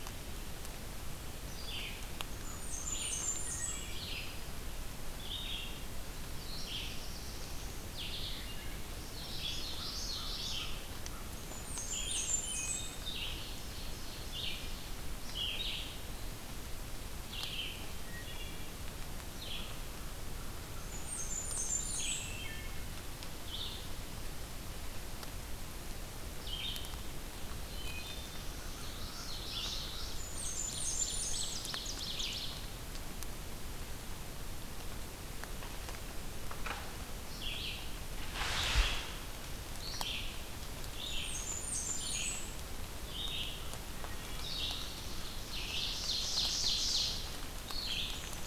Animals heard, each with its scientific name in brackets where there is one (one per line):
Black-throated Blue Warbler (Setophaga caerulescens)
Black-and-white Warbler (Mniotilta varia)
Blackburnian Warbler (Setophaga fusca)
Red-eyed Vireo (Vireo olivaceus)
Wood Thrush (Hylocichla mustelina)
Ovenbird (Seiurus aurocapilla)
Common Yellowthroat (Geothlypis trichas)
American Crow (Corvus brachyrhynchos)